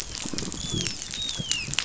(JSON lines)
{"label": "biophony, dolphin", "recorder": "SoundTrap 500"}